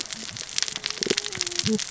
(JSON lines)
{"label": "biophony, cascading saw", "recorder": "SoundTrap 600 or HydroMoth"}